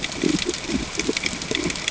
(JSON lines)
{"label": "ambient", "recorder": "HydroMoth"}